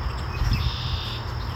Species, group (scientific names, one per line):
Anaxipha vernalis
Orthoptera